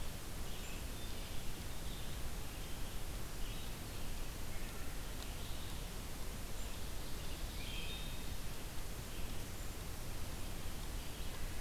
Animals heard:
Red-eyed Vireo (Vireo olivaceus), Wood Thrush (Hylocichla mustelina)

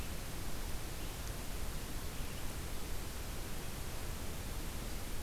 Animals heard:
Red-eyed Vireo (Vireo olivaceus)

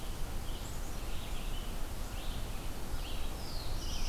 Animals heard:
Red-eyed Vireo (Vireo olivaceus), Black-capped Chickadee (Poecile atricapillus), Black-throated Blue Warbler (Setophaga caerulescens)

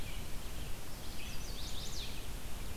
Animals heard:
Chestnut-sided Warbler (Setophaga pensylvanica), Red-eyed Vireo (Vireo olivaceus)

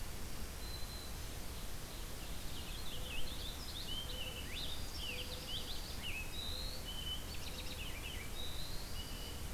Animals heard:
Purple Finch (Haemorhous purpureus), Dark-eyed Junco (Junco hyemalis), Black-throated Green Warbler (Setophaga virens), Ovenbird (Seiurus aurocapilla)

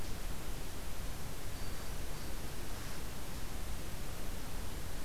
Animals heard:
Hermit Thrush (Catharus guttatus)

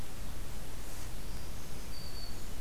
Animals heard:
Black-throated Green Warbler (Setophaga virens)

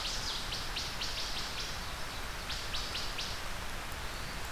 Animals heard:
Wood Thrush (Hylocichla mustelina)

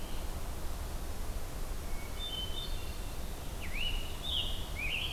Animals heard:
Scarlet Tanager (Piranga olivacea), Hermit Thrush (Catharus guttatus)

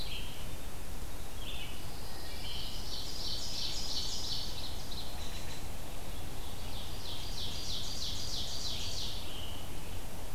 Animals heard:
Ovenbird (Seiurus aurocapilla), American Robin (Turdus migratorius), Red-eyed Vireo (Vireo olivaceus), Pine Warbler (Setophaga pinus)

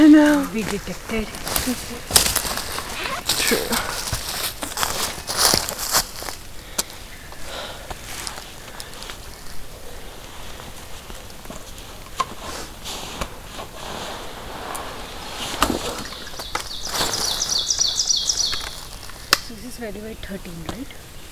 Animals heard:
Ovenbird (Seiurus aurocapilla)

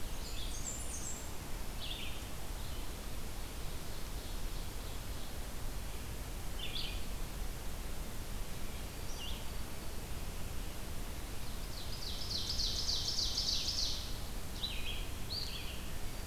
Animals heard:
Ovenbird (Seiurus aurocapilla), Red-eyed Vireo (Vireo olivaceus), Black-throated Green Warbler (Setophaga virens), Black-and-white Warbler (Mniotilta varia)

